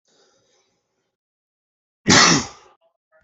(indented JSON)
{
  "expert_labels": [
    {
      "quality": "good",
      "cough_type": "dry",
      "dyspnea": false,
      "wheezing": false,
      "stridor": false,
      "choking": false,
      "congestion": false,
      "nothing": true,
      "diagnosis": "healthy cough",
      "severity": "pseudocough/healthy cough"
    }
  ],
  "age": 18,
  "gender": "male",
  "respiratory_condition": false,
  "fever_muscle_pain": false,
  "status": "symptomatic"
}